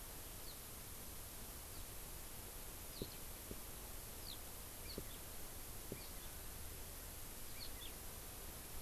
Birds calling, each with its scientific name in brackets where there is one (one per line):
Eurasian Skylark (Alauda arvensis)